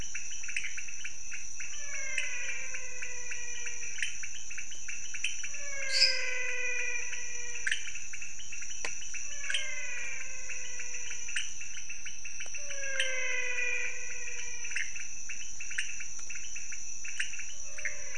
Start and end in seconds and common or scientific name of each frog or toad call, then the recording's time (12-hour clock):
0.0	18.1	pointedbelly frog
1.4	4.2	menwig frog
5.5	8.1	menwig frog
5.8	6.5	lesser tree frog
9.1	15.0	menwig frog
17.3	18.1	menwig frog
4:00am